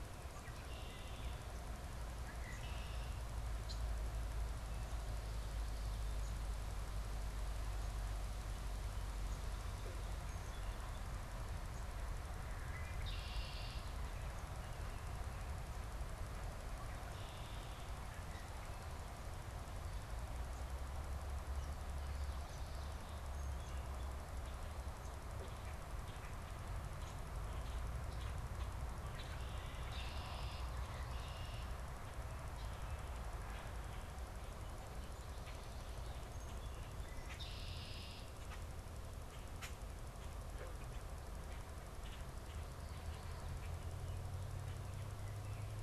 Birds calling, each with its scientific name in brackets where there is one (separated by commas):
Red-winged Blackbird (Agelaius phoeniceus), unidentified bird